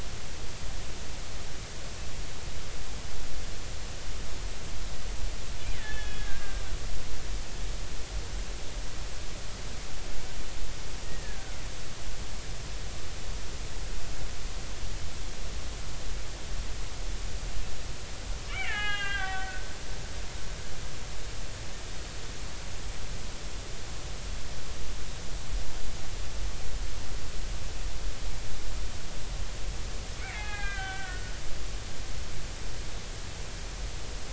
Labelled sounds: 5.8	6.6	killer whale, Bigg's (transient), 1.5 to 3.5 kHz
11.0	11.6	killer whale, Bigg's (transient), 1.3 to 2.0 kHz
18.5	19.6	killer whale, Bigg's (transient), 0.80 to 4.2 kHz
30.2	31.3	killer whale, Bigg's (transient), 0.80 to 4.2 kHz

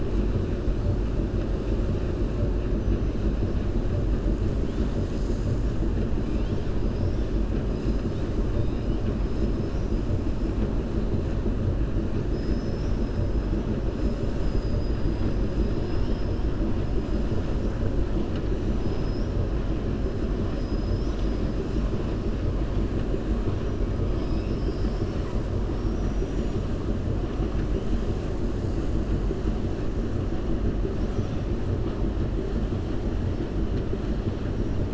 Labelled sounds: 8.5	8.9	killer whale, 2.8 to 4.3 kHz
13.9	15.3	killer whale, 4.8 to 7.9 kHz
20.5	21.4	killer whale, 3.0 to 6.7 kHz

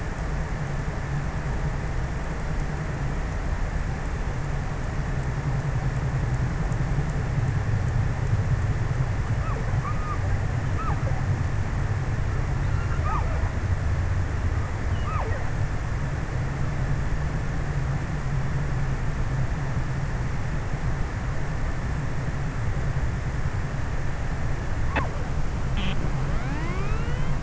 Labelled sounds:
8.7	11.3	killer whale, offshore, 0.34 to 1.7 kHz
12.4	14.1	killer whale, offshore, 0.53 to 1.8 kHz
14.5	16.6	killer whale, offshore, 0.24 to 1.7 kHz

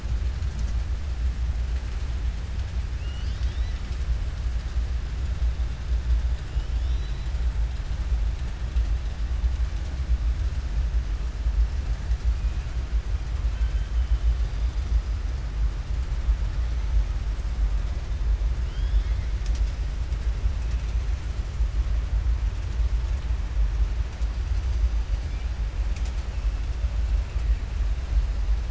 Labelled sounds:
18.6	19.3	killer whale, southern resident, 1.7 to 5.4 kHz

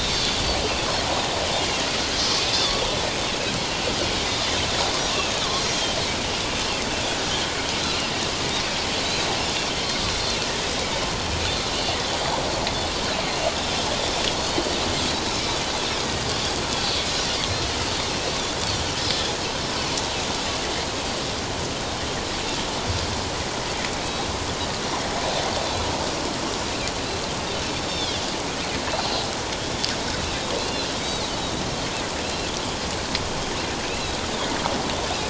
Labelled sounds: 2.4	2.8	Pacific white-sided dolphin, 3.4 to 5.2 kHz
4.1	4.4	Pacific white-sided dolphin, 3.6 to 3.8 kHz
10.8	11.0	Pacific white-sided dolphin, 2.2 to 2.4 kHz
14.3	14.8	Pacific white-sided dolphin, 3.0 to 4.5 kHz
20.4	20.7	Pacific white-sided dolphin, 2.7 to 2.8 kHz
24.0	24.3	Pacific white-sided dolphin, 3.8 to 3.9 kHz
27.1	28.2	Pacific white-sided dolphin, 3.2 to 4.6 kHz
28.9	29.2	Pacific white-sided dolphin, 3.9 to 4.2 kHz
31.0	31.3	Pacific white-sided dolphin, 3.5 to 3.9 kHz
32.2	32.5	Pacific white-sided dolphin, 2.5 to 4.2 kHz
33.9	34.2	Pacific white-sided dolphin, 2.4 to 4.1 kHz

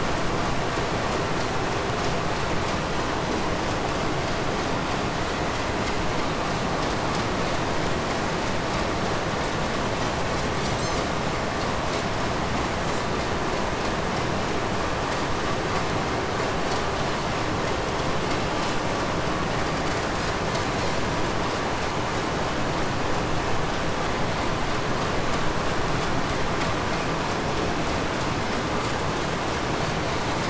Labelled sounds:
10.5	11.3	Pacific white-sided dolphin, 2.8 to 8.0 kHz
19.3	20.8	Pacific white-sided dolphin, 3.5 to 8.0 kHz

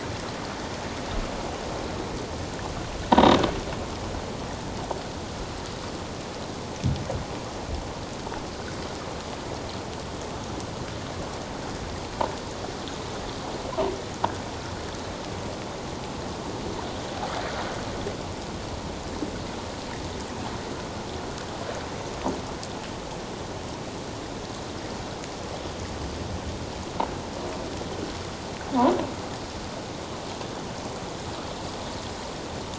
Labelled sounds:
3.1	3.4	croaking sound likely from a nearby submerged object, 3.6 to 3.9 kHz

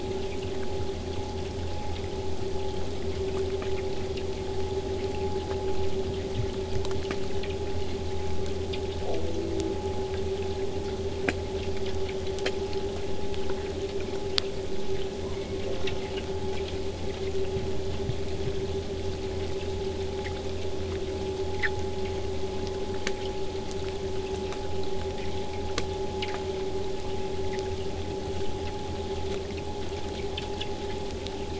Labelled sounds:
8.9	9.6	killer whale, southern resident, 0.14 to 1.0 kHz
15.1	16.3	killer whale, southern resident, J pod, call S04, 0.31 to 2.9 kHz

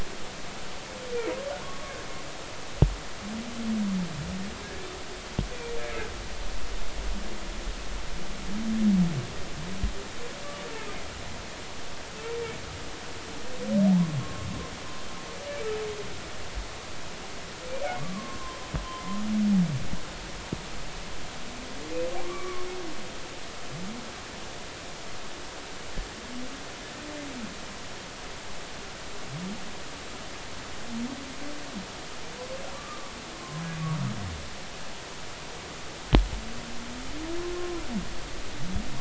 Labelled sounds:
1.6	1.9	humpback whale, 1.0 to 1.2 kHz
4.6	4.9	humpback whale, 1.6 to 1.8 kHz
14.2	14.5	humpback whale, 1.0 to 1.1 kHz
18.0	18.4	humpback whale, 1.0 to 1.2 kHz
18.8	19.2	humpback whale, 0.99 to 1.1 kHz
22.2	22.7	humpback whale, 1.1 to 1.2 kHz
32.7	33.6	humpback whale, 0.99 to 1.3 kHz
37.6	37.8	humpback whale, 0.96 to 1.1 kHz

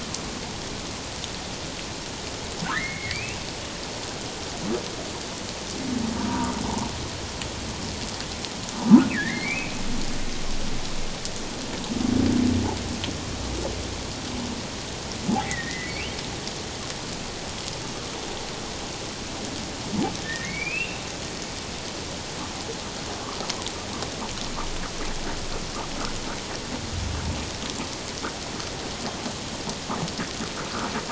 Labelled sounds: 2.6	3.4	humpback whale, 1.2 to 2.8 kHz
9.1	9.8	humpback whale, 1.6 to 2.8 kHz
15.3	16.2	humpback whale, 0.78 to 3.3 kHz
20.2	21.0	humpback whale, 1.7 to 2.9 kHz

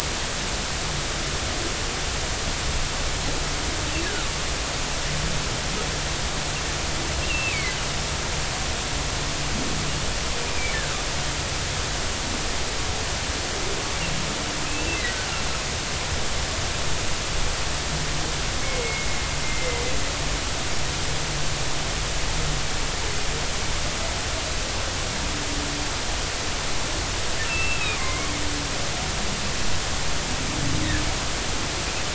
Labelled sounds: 7.2	7.7	humpback whale, 2.0 to 2.9 kHz
10.5	11.0	humpback whale, 1.1 to 2.5 kHz
14.6	15.0	humpback whale, 2.4 to 2.8 kHz
18.6	19.8	humpback whale, 2.0 to 2.2 kHz
27.5	28.3	humpback whale, 0.99 to 2.8 kHz

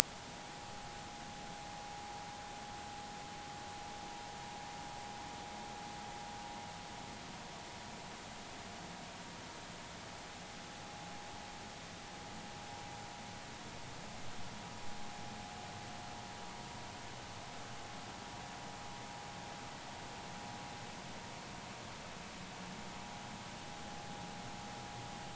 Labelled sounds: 0.7	1.7	vessel noise, 0.80 to 0.96 kHz

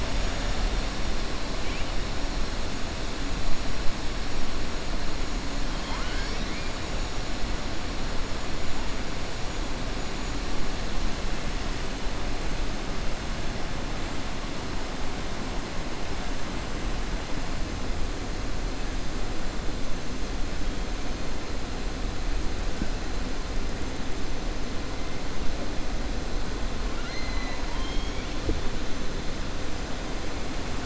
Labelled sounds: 5.7	6.7	killer whale, southern resident, 0.94 to 6.0 kHz
26.9	28.3	killer whale, southern resident, 0.75 to 6.4 kHz

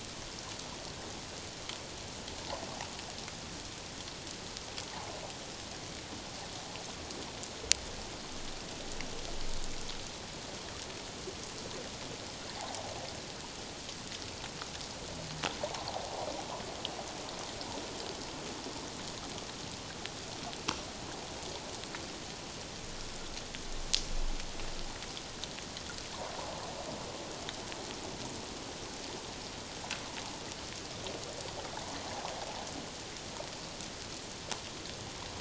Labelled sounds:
15.6	15.9	water noise, 0.78 to 1.2 kHz

